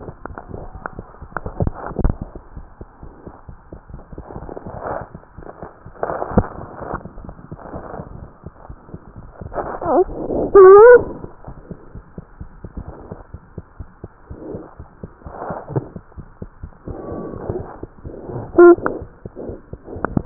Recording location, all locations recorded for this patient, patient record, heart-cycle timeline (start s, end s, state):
tricuspid valve (TV)
aortic valve (AV)+pulmonary valve (PV)+tricuspid valve (TV)+mitral valve (MV)
#Age: Infant
#Sex: Male
#Height: 70.0 cm
#Weight: 8.45 kg
#Pregnancy status: False
#Murmur: Absent
#Murmur locations: nan
#Most audible location: nan
#Systolic murmur timing: nan
#Systolic murmur shape: nan
#Systolic murmur grading: nan
#Systolic murmur pitch: nan
#Systolic murmur quality: nan
#Diastolic murmur timing: nan
#Diastolic murmur shape: nan
#Diastolic murmur grading: nan
#Diastolic murmur pitch: nan
#Diastolic murmur quality: nan
#Outcome: Abnormal
#Campaign: 2015 screening campaign
0.00	11.30	unannotated
11.30	11.43	diastole
11.43	11.53	S1
11.53	11.69	systole
11.69	11.75	S2
11.75	11.95	diastole
11.95	12.01	S1
12.01	12.17	systole
12.17	12.22	S2
12.22	12.40	diastole
12.40	12.46	S1
12.46	12.62	systole
12.62	12.68	S2
12.68	12.85	diastole
12.85	12.93	S1
12.93	13.10	systole
13.10	13.16	S2
13.16	13.33	diastole
13.33	13.38	S1
13.38	13.56	systole
13.56	13.62	S2
13.62	13.78	diastole
13.78	13.84	S1
13.84	14.02	systole
14.02	14.10	S2
14.10	14.29	diastole
14.29	14.35	S1
14.35	14.53	systole
14.53	14.59	S2
14.59	14.78	diastole
14.78	14.84	S1
14.84	15.01	systole
15.01	15.08	S2
15.08	15.25	diastole
15.25	15.32	S1
15.32	15.49	systole
15.49	15.56	S2
15.56	15.70	diastole
15.70	15.75	S1
15.75	15.94	systole
15.94	16.00	S2
16.00	16.17	diastole
16.17	16.24	S1
16.24	16.39	systole
16.39	16.46	S2
16.46	16.60	diastole
16.60	16.68	S1
16.68	16.85	systole
16.85	20.26	unannotated